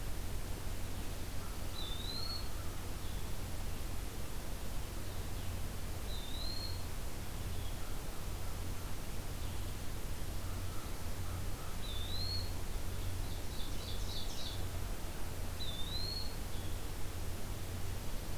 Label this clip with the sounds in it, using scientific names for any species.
Vireo solitarius, Corvus brachyrhynchos, Contopus virens, Seiurus aurocapilla